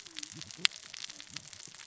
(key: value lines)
label: biophony, cascading saw
recorder: SoundTrap 600 or HydroMoth